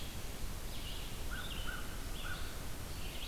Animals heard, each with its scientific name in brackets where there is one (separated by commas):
Red-eyed Vireo (Vireo olivaceus), American Crow (Corvus brachyrhynchos)